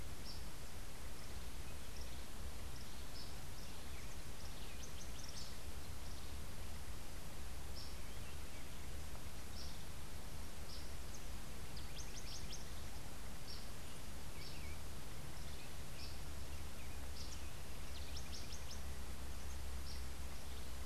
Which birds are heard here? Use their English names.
Yellow Warbler, House Wren